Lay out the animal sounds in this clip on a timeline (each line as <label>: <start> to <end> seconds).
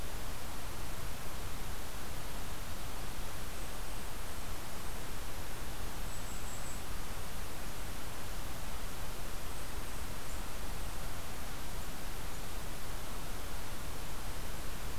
Golden-crowned Kinglet (Regulus satrapa): 3.5 to 5.0 seconds
Golden-crowned Kinglet (Regulus satrapa): 6.0 to 6.8 seconds
Golden-crowned Kinglet (Regulus satrapa): 9.4 to 12.7 seconds